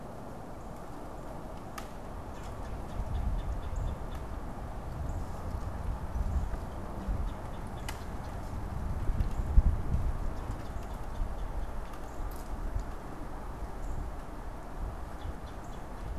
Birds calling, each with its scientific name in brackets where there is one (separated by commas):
Red-bellied Woodpecker (Melanerpes carolinus), Northern Cardinal (Cardinalis cardinalis)